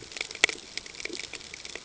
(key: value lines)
label: ambient
recorder: HydroMoth